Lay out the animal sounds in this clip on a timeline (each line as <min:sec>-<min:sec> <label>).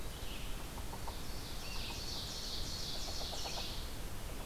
0:00.0-0:04.5 Red-eyed Vireo (Vireo olivaceus)
0:00.4-0:04.5 Yellow-bellied Sapsucker (Sphyrapicus varius)
0:01.0-0:03.9 Ovenbird (Seiurus aurocapilla)